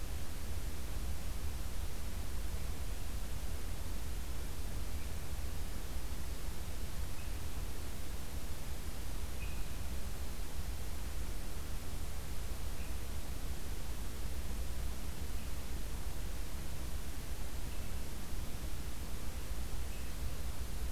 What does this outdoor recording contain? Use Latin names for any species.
Catharus ustulatus